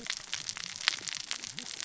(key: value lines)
label: biophony, cascading saw
recorder: SoundTrap 600 or HydroMoth